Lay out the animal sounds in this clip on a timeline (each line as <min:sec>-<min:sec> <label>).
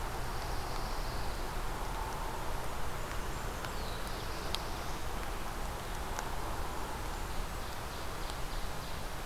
0:00.1-0:01.7 Pine Warbler (Setophaga pinus)
0:02.2-0:03.8 Blackburnian Warbler (Setophaga fusca)
0:03.4-0:05.2 Black-throated Blue Warbler (Setophaga caerulescens)
0:06.3-0:07.8 Blackburnian Warbler (Setophaga fusca)
0:07.1-0:09.3 Ovenbird (Seiurus aurocapilla)